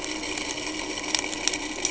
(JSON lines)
{"label": "anthrophony, boat engine", "recorder": "HydroMoth"}